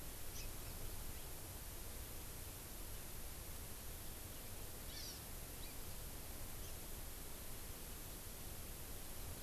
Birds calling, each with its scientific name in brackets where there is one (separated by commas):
Hawaii Amakihi (Chlorodrepanis virens)